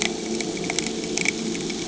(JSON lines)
{"label": "anthrophony, boat engine", "recorder": "HydroMoth"}